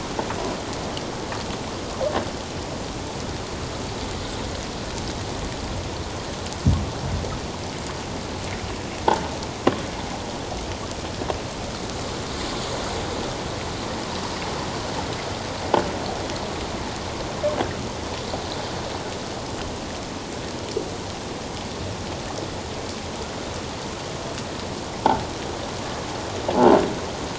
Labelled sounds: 26.5	26.8	croaking sound likely from a nearby submerged object, 0.78 to 1.1 kHz

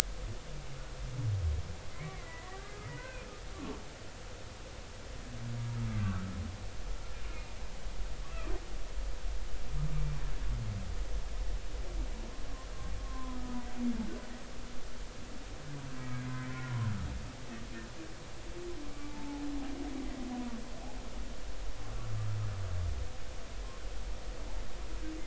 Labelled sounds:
1.9	3.2	humpback whale, 1.1 to 2.4 kHz
5.9	6.2	humpback whale, 1.5 to 1.7 kHz
7.2	7.5	humpback whale, 2.0 to 2.5 kHz
13.3	13.6	humpback whale, 1.2 to 1.3 kHz
14.0	14.4	humpback whale, 0.96 to 1.1 kHz
16.0	16.7	humpback whale, 1.4 to 2.3 kHz
19.1	19.4	humpback whale, 0.80 to 0.93 kHz

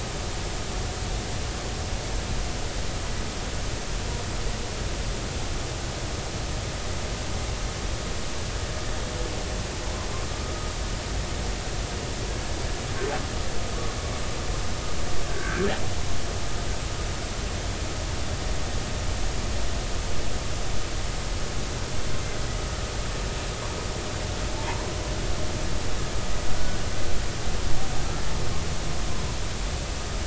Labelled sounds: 10.4	10.7	humpback whale, 1.2 to 1.3 kHz
15.3	15.7	humpback whale, 1.5 to 1.7 kHz

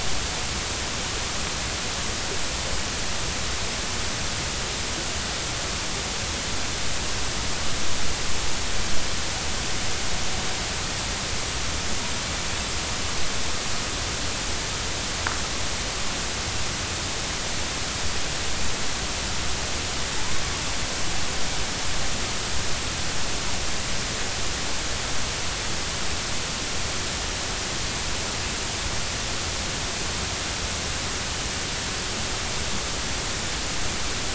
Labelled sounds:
20.2	20.4	killer whale, northern resident, A clan, AB subclan, 0.83 to 1.1 kHz

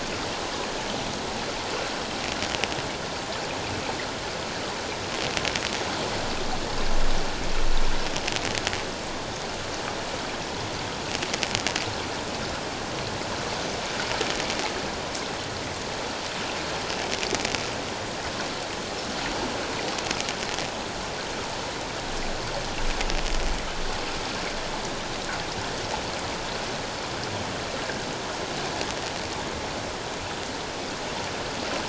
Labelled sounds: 27.8	28.1	water noise, 1.4 to 1.8 kHz

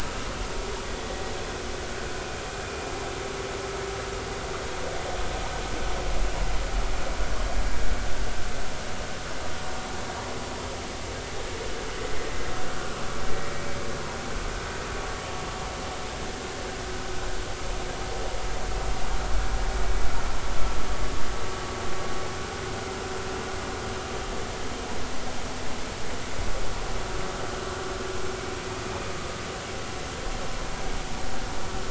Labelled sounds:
12.6	13.7	vessel noise, 1.2 to 2.3 kHz

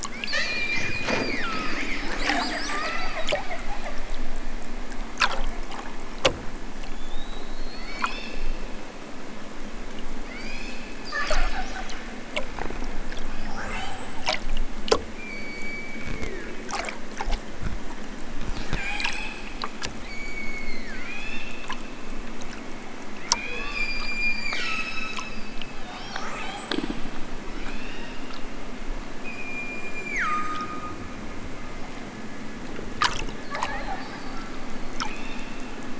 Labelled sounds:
0.2	1.9	killer whale, southern Alaska resident, 0.87 to 5.0 kHz
2.6	3.2	killer whale, southern Alaska resident, 0.83 to 4.4 kHz
7.6	8.6	killer whale, southern Alaska resident, 0.78 to 6.4 kHz
10.2	10.9	killer whale, southern Alaska resident, 0.78 to 8.0 kHz
13.3	14.4	killer whale, southern Alaska resident, 0.37 to 8.0 kHz
15.1	16.7	killer whale, southern Alaska resident, 1.0 to 4.9 kHz
18.4	19.7	killer whale, southern Alaska resident, 0.50 to 8.0 kHz
20.0	21.5	killer whale, southern Alaska resident, 0.41 to 7.6 kHz
23.2	28.4	killer whale, southern Alaska resident, 0.41 to 8.0 kHz
29.1	31.1	killer whale, southern Alaska resident, 0.64 to 8.0 kHz
34.9	35.8	killer whale, southern Alaska resident, 1.7 to 6.0 kHz

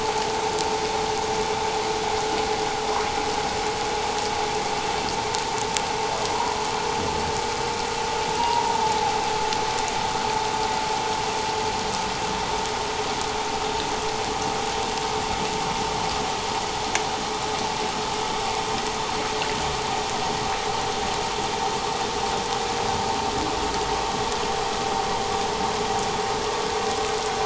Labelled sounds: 6.3	6.6	humpback whale, 0.91 to 1.1 kHz
8.4	8.7	humpback whale, 0.88 to 1.0 kHz

